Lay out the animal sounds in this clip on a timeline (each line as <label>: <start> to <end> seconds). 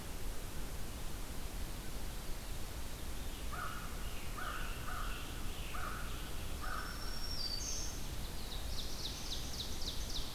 Veery (Catharus fuscescens): 2.9 to 4.3 seconds
American Crow (Corvus brachyrhynchos): 3.4 to 7.4 seconds
Scarlet Tanager (Piranga olivacea): 3.9 to 6.5 seconds
Black-throated Green Warbler (Setophaga virens): 6.5 to 8.2 seconds
Ovenbird (Seiurus aurocapilla): 8.2 to 10.3 seconds
Black-throated Blue Warbler (Setophaga caerulescens): 8.2 to 9.7 seconds